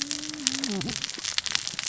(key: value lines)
label: biophony, cascading saw
recorder: SoundTrap 600 or HydroMoth